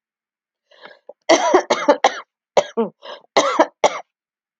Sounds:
Cough